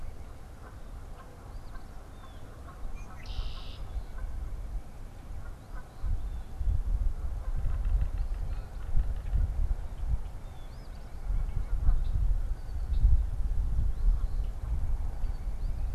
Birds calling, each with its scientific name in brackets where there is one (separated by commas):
Blue Jay (Cyanocitta cristata), Eastern Phoebe (Sayornis phoebe), Yellow-bellied Sapsucker (Sphyrapicus varius), Canada Goose (Branta canadensis), Red-winged Blackbird (Agelaius phoeniceus)